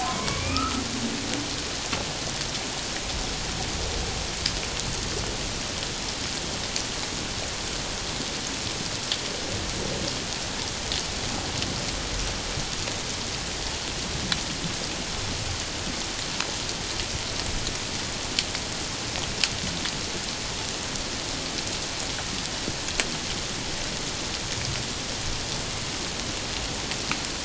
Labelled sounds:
0.0	0.8	humpback whale, 0.97 to 2.6 kHz

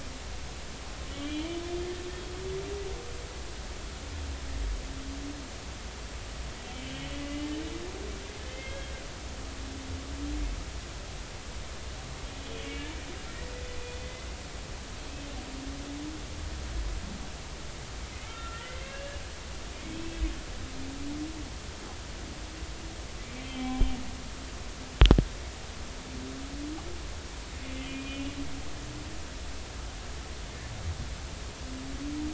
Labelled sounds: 1.1	1.6	humpback whale, 2.8 to 3.3 kHz
7.2	7.5	humpback whale, 2.0 to 3.0 kHz
8.5	8.9	humpback whale, 1.5 to 3.3 kHz
12.4	12.9	humpback whale, 2.2 to 3.4 kHz
14.0	14.3	humpback whale, 2.0 to 2.1 kHz
18.2	19.1	humpback whale, 1.3 to 2.8 kHz
19.9	20.2	humpback whale, 2.5 to 2.7 kHz
23.4	23.9	humpback whale, 2.0 to 3.4 kHz
27.9	28.2	humpback whale, 2.4 to 2.5 kHz

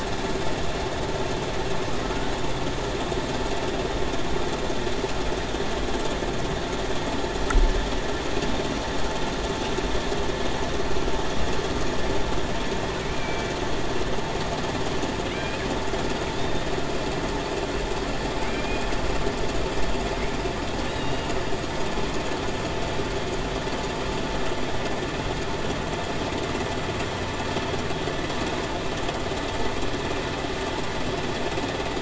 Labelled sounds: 13.1	13.5	killer whale, Bigg's (transient), 2.3 to 2.4 kHz
18.5	18.9	killer whale, Bigg's (transient), 2.3 to 2.6 kHz
20.9	21.4	killer whale, Bigg's (transient), 2.7 to 2.9 kHz

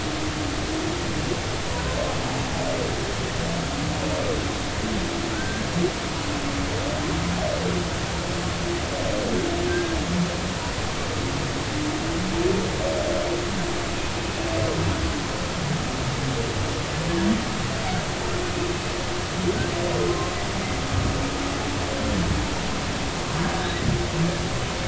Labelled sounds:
5.3	5.7	humpback whale, 1.3 to 1.7 kHz
9.7	10.0	humpback whale, 1.5 to 1.7 kHz
20.1	20.3	humpback whale, 0.99 to 1.1 kHz

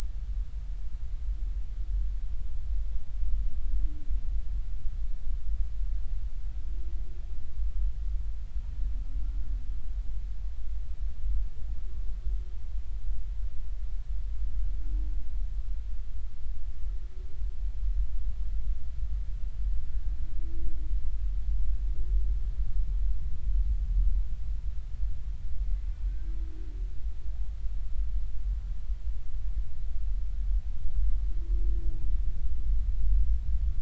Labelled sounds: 9.2	9.5	humpback whale, 1.3 to 1.4 kHz
25.7	26.3	humpback whale, 1.5 to 2.1 kHz

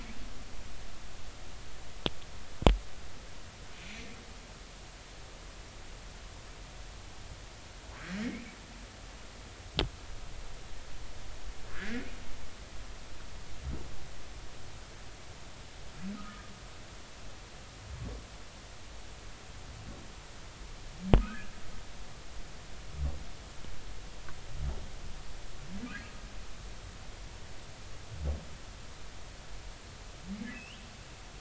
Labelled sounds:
3.7	4.1	humpback whale, 2.2 to 2.6 kHz
8.2	8.5	humpback whale, 2.1 to 2.5 kHz
11.7	12.0	humpback whale, 1.4 to 2.3 kHz
16.2	16.5	humpback whale, 1.2 to 1.5 kHz
21.2	21.5	humpback whale, 1.2 to 1.8 kHz
30.5	30.8	humpback whale, 2.5 to 3.4 kHz

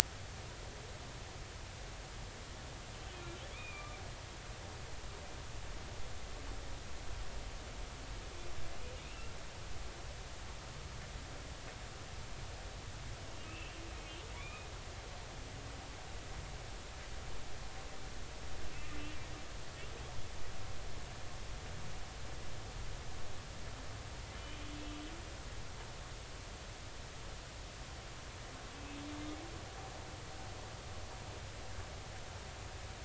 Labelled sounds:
3.5	4.0	humpback whale, 1.1 to 2.6 kHz
9.0	9.3	humpback whale, 2.4 to 3.0 kHz
13.4	13.8	humpback whale, 2.5 to 2.8 kHz
14.3	14.7	humpback whale, 0.93 to 2.6 kHz
24.4	24.6	humpback whale, 2.9 to 3.1 kHz
28.7	29.0	humpback whale, 2.5 to 2.7 kHz

